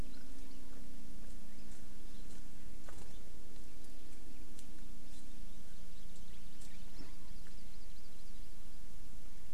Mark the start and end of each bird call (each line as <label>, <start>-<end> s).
Hawaii Amakihi (Chlorodrepanis virens), 7.1-8.3 s